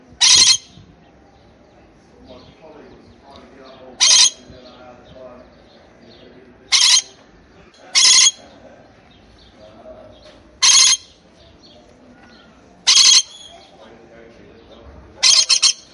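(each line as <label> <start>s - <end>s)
Birds chirping in the background. 0.0s - 15.9s
A bird screeches loudly. 0.2s - 0.6s
A man is speaking English with a slightly muffled voice. 2.3s - 15.9s
A bird screeches loudly. 4.0s - 4.3s
A bird screeches loudly. 6.7s - 7.1s
A bird screeches loudly. 7.9s - 8.3s
A bird screeches loudly. 10.6s - 11.0s
A bird screeches loudly. 12.9s - 13.3s
A woman is speaking English softly in the background. 13.4s - 14.1s
A bird screeches loudly. 15.2s - 15.8s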